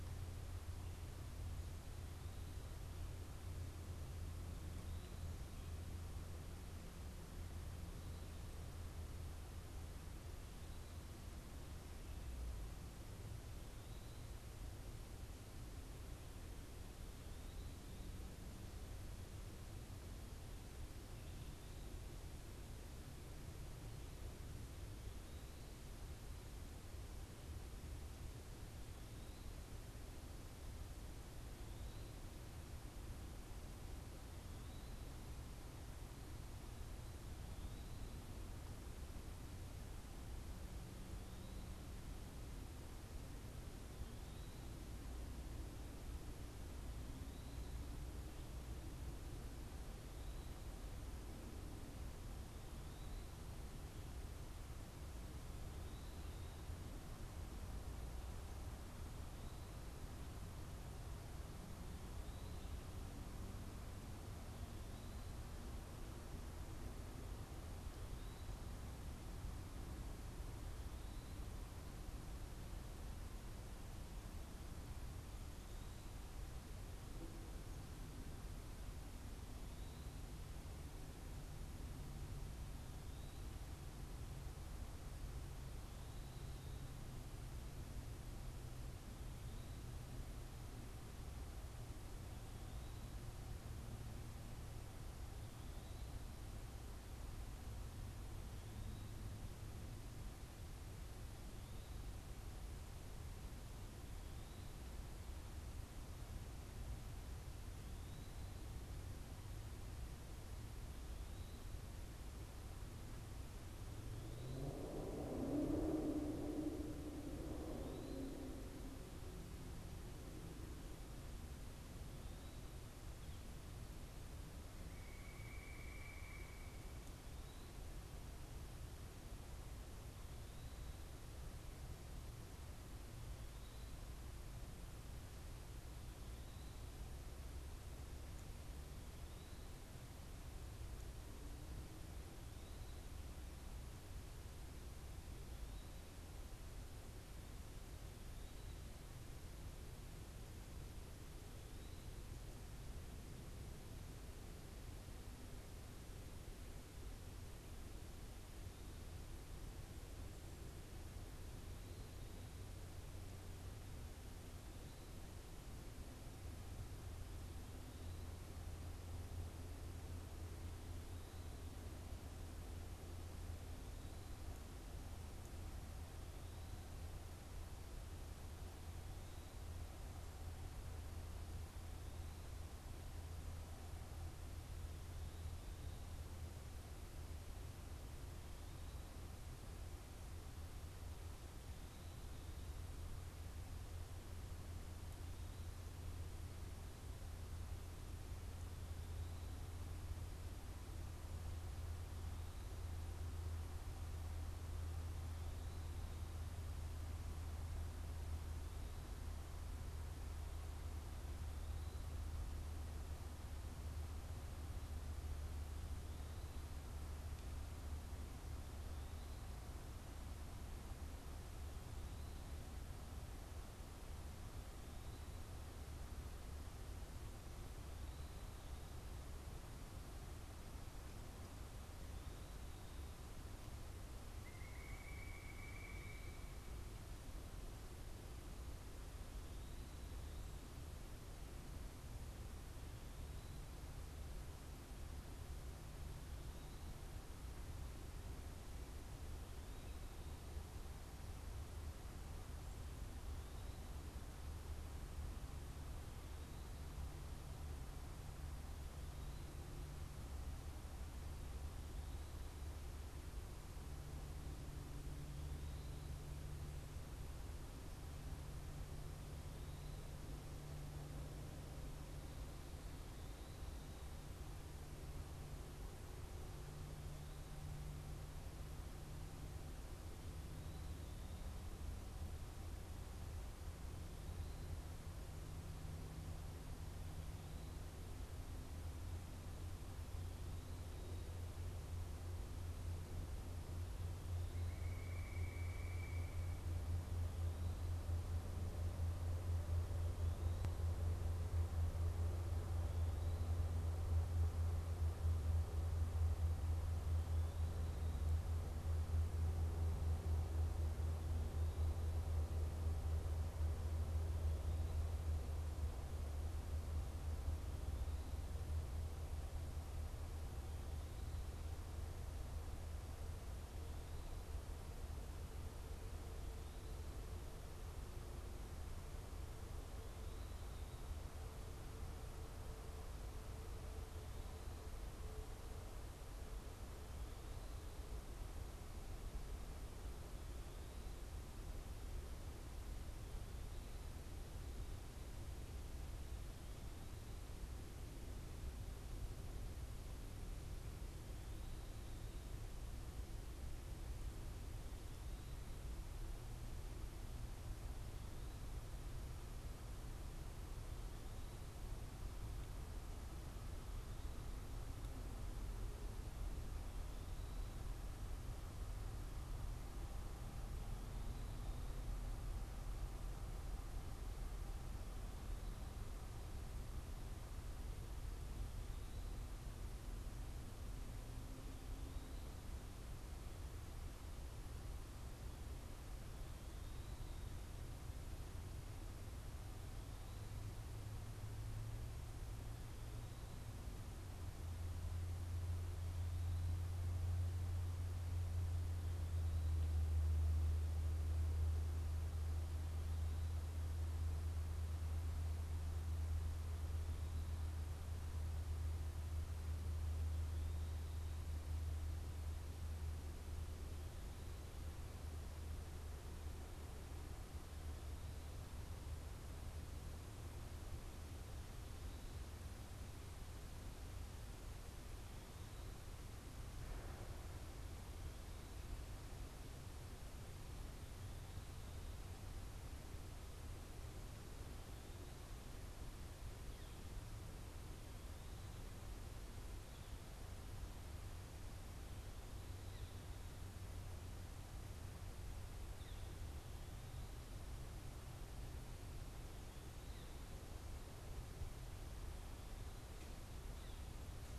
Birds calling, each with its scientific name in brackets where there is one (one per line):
Pileated Woodpecker (Dryocopus pileatus)
Northern Flicker (Colaptes auratus)